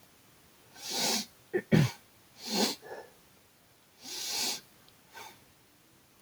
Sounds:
Sniff